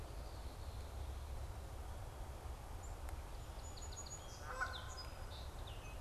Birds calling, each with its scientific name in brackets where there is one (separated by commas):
Red-winged Blackbird (Agelaius phoeniceus), Black-capped Chickadee (Poecile atricapillus), Song Sparrow (Melospiza melodia), Canada Goose (Branta canadensis)